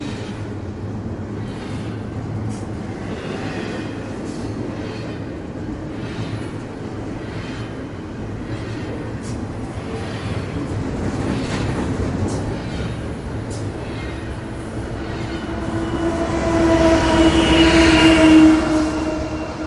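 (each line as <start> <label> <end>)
0.0 Vibrating and rattling iron rails. 19.7
15.0 A train is passing by on rails outdoors. 19.7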